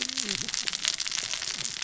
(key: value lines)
label: biophony, cascading saw
recorder: SoundTrap 600 or HydroMoth